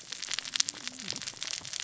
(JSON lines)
{"label": "biophony, cascading saw", "recorder": "SoundTrap 600 or HydroMoth"}